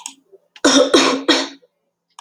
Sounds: Cough